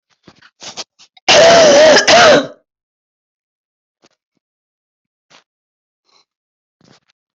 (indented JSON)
{
  "expert_labels": [
    {
      "quality": "ok",
      "cough_type": "dry",
      "dyspnea": false,
      "wheezing": false,
      "stridor": false,
      "choking": false,
      "congestion": false,
      "nothing": true,
      "diagnosis": "upper respiratory tract infection",
      "severity": "mild"
    }
  ],
  "age": 46,
  "gender": "female",
  "respiratory_condition": false,
  "fever_muscle_pain": false,
  "status": "healthy"
}